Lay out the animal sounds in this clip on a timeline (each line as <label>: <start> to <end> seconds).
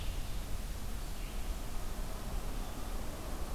American Robin (Turdus migratorius): 0.0 to 0.6 seconds
Red-eyed Vireo (Vireo olivaceus): 0.0 to 3.5 seconds